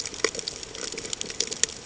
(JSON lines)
{"label": "ambient", "recorder": "HydroMoth"}